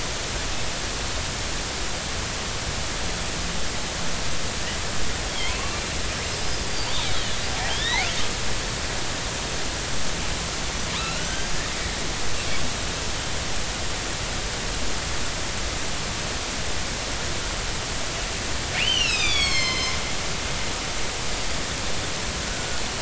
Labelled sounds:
5.5	5.8	killer whale, northern resident, 2.5 to 2.8 kHz
6.7	6.9	killer whale, northern resident, 4.5 to 4.8 kHz
7.7	8.1	killer whale, northern resident, 1.7 to 4.4 kHz
10.9	12.3	killer whale, northern resident, 1.2 to 6.4 kHz
18.8	20.0	killer whale, northern resident, 1.0 to 7.8 kHz

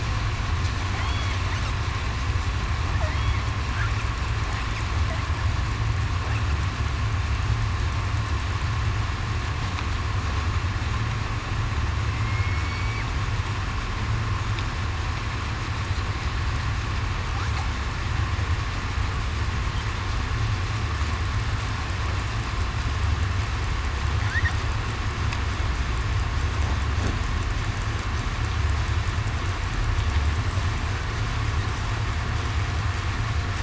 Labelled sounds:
1.0	1.3	killer whale, southern resident, 3.0 to 3.4 kHz
12.1	13.0	killer whale, southern resident, 2.1 to 2.3 kHz

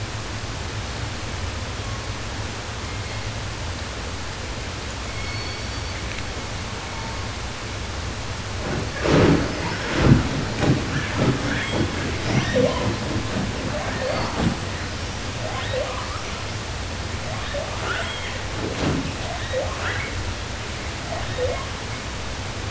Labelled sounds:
1.6	2.2	killer whale, southern resident, J pod, call S01, 0.76 to 3.5 kHz
2.6	3.5	killer whale, southern resident, J pod, call S01, 1.8 to 4.5 kHz
4.9	6.1	killer whale, southern resident, 0.10 to 7.4 kHz
6.7	7.4	killer whale, 0.16 to 1.4 kHz
10.8	12.1	killer whale, 1.1 to 8.0 kHz
12.2	13.1	killer whale, southern resident, J pod, call S02i, 0.45 to 7.7 kHz
13.8	14.6	killer whale, southern resident, J pod, call S02i, 0.42 to 8.0 kHz
15.3	16.2	killer whale, southern resident, J pod, call S02i, 0.42 to 4.4 kHz
17.2	18.5	killer whale, southern resident, J pod, call S02i and call S44, 0.24 to 8.0 kHz
19.1	20.2	killer whale, southern resident, 0.31 to 4.2 kHz
21.0	21.8	killer whale, southern resident, J pod, call S02i, 0.36 to 4.1 kHz

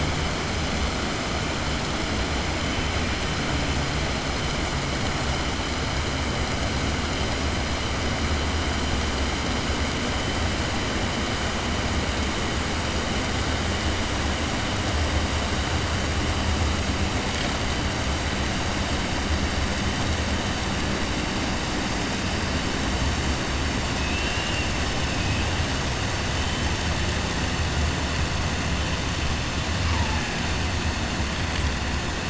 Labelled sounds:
24.0	24.7	killer whale, 2.5 to 3.1 kHz

